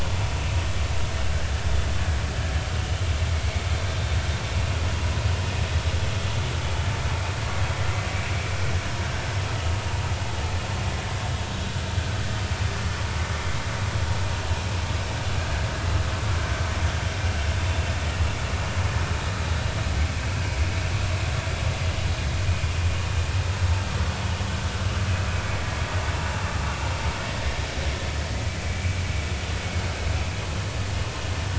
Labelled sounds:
28.7	29.0	vessel noise, 2.2 to 2.4 kHz

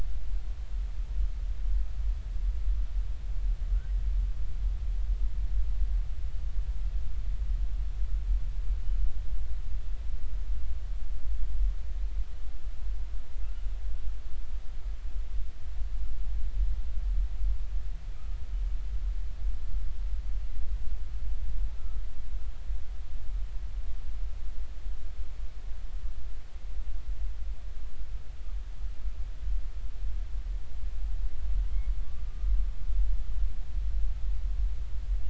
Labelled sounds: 21.8	22.0	humpback whale, 1.3 to 1.4 kHz

